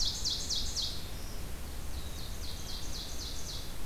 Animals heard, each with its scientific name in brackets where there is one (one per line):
Ovenbird (Seiurus aurocapilla)
Black-throated Blue Warbler (Setophaga caerulescens)